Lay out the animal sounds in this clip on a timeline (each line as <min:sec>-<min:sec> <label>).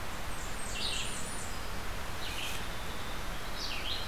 0:00.0-0:01.6 Blackburnian Warbler (Setophaga fusca)
0:00.0-0:04.1 Red-eyed Vireo (Vireo olivaceus)
0:00.0-0:04.1 Winter Wren (Troglodytes hiemalis)